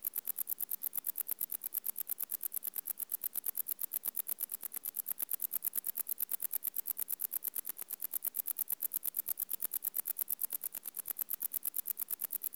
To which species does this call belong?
Decticus verrucivorus